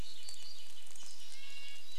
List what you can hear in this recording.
Red-breasted Nuthatch song, rain